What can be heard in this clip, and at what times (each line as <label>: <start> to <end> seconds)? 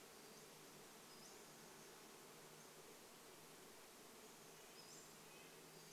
Pacific-slope Flycatcher call: 0 to 2 seconds
insect buzz: 0 to 6 seconds
Red-breasted Nuthatch song: 2 to 6 seconds
Pacific-slope Flycatcher call: 4 to 6 seconds